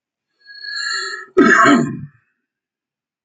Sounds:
Cough